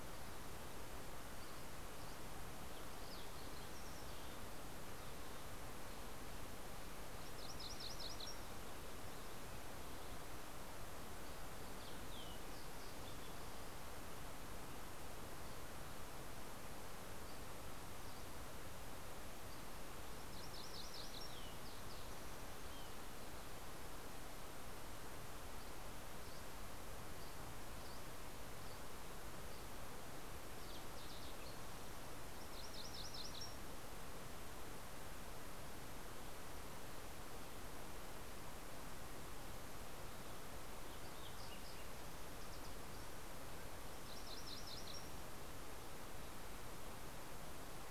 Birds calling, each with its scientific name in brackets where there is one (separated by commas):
MacGillivray's Warbler (Geothlypis tolmiei), Fox Sparrow (Passerella iliaca), Green-tailed Towhee (Pipilo chlorurus), Dusky Flycatcher (Empidonax oberholseri)